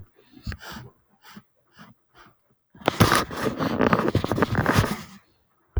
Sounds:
Sniff